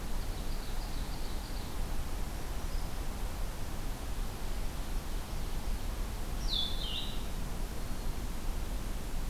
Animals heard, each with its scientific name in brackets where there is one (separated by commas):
Black-throated Green Warbler (Setophaga virens), Blue-headed Vireo (Vireo solitarius), Ovenbird (Seiurus aurocapilla)